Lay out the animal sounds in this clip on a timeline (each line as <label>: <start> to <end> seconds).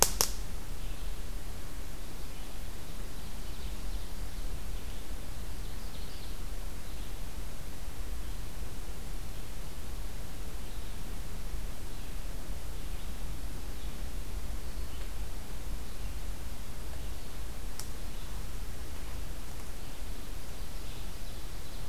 Red-eyed Vireo (Vireo olivaceus): 0.0 to 21.1 seconds
Ovenbird (Seiurus aurocapilla): 5.1 to 6.5 seconds
Ovenbird (Seiurus aurocapilla): 19.5 to 21.9 seconds